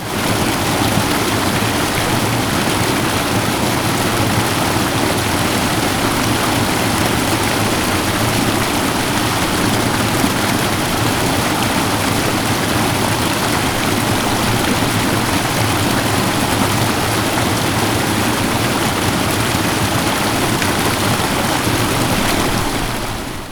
Is wetness conveyed?
yes